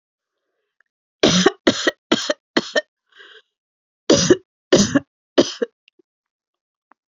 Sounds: Cough